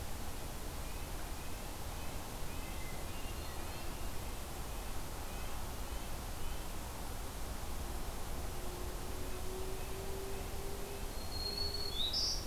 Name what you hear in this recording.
Red-breasted Nuthatch, Hermit Thrush, Black-throated Green Warbler